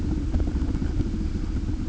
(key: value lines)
label: ambient
recorder: HydroMoth